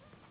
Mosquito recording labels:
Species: Anopheles gambiae s.s.; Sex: female; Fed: unfed; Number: one; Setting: insect culture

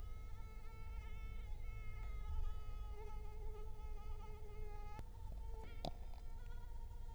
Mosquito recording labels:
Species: Culex quinquefasciatus; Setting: cup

